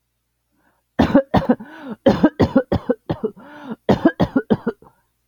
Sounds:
Cough